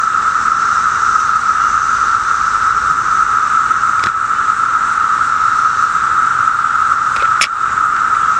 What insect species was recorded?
Magicicada septendecula